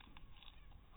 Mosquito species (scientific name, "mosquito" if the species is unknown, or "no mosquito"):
mosquito